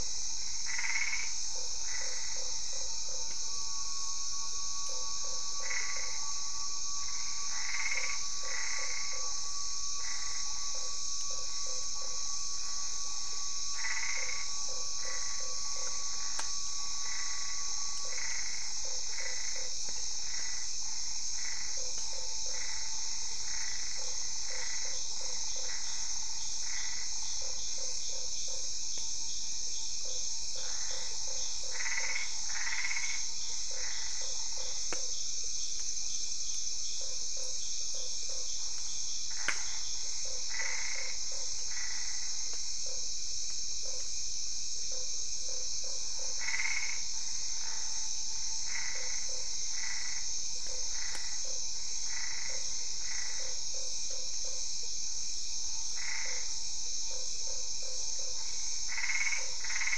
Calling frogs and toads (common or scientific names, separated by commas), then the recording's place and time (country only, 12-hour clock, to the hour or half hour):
Boana albopunctata, Usina tree frog, Dendropsophus cruzi
Brazil, ~7pm